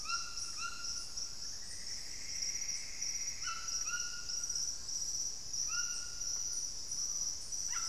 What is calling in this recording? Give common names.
White-throated Toucan, Plumbeous Antbird, Screaming Piha